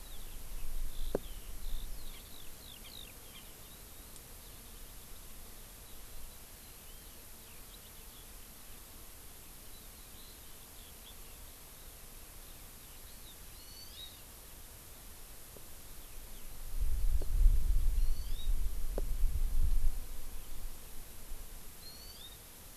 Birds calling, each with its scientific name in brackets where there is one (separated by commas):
Hawaii Amakihi (Chlorodrepanis virens), Eurasian Skylark (Alauda arvensis)